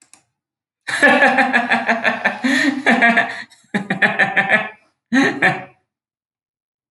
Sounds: Laughter